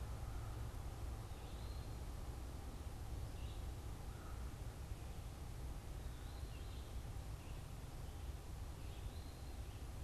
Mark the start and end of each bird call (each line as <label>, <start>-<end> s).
American Crow (Corvus brachyrhynchos), 0.0-5.7 s
Eastern Wood-Pewee (Contopus virens), 0.0-9.9 s